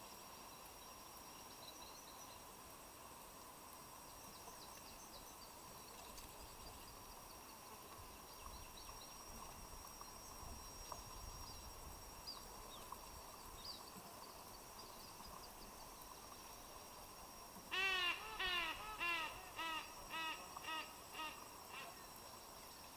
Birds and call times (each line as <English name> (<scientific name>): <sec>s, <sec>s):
Silvery-cheeked Hornbill (Bycanistes brevis): 19.5s